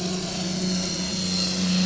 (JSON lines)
{"label": "anthrophony, boat engine", "recorder": "SoundTrap 500"}